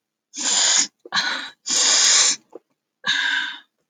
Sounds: Sniff